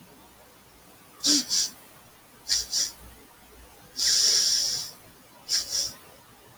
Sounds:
Sniff